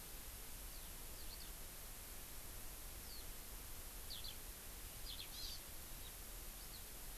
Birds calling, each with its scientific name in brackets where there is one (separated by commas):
Eurasian Skylark (Alauda arvensis), Hawaii Amakihi (Chlorodrepanis virens)